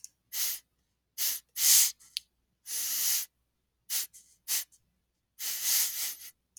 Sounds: Sniff